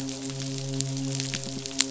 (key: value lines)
label: biophony, midshipman
recorder: SoundTrap 500